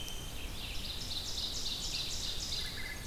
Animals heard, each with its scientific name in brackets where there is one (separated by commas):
Red-eyed Vireo (Vireo olivaceus), Ovenbird (Seiurus aurocapilla), Wood Thrush (Hylocichla mustelina)